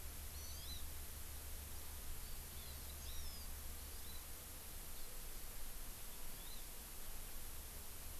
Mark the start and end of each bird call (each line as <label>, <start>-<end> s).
Hawaii Amakihi (Chlorodrepanis virens), 0.3-0.8 s
Hawaii Amakihi (Chlorodrepanis virens), 3.0-3.4 s
Hawaii Amakihi (Chlorodrepanis virens), 3.7-4.2 s
Hawaii Amakihi (Chlorodrepanis virens), 6.3-6.6 s